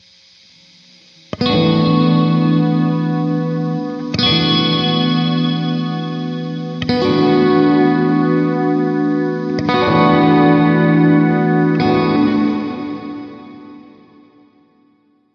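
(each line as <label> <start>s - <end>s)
An electric guitar chord played with reverb indoors. 1.3s - 9.6s
Reverberated electric guitar chord played twice, slowly fading. 9.7s - 14.3s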